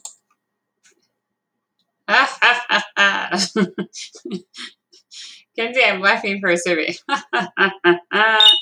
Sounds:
Laughter